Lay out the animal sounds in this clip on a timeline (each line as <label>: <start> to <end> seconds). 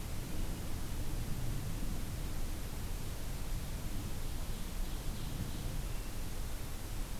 Ovenbird (Seiurus aurocapilla): 3.9 to 5.8 seconds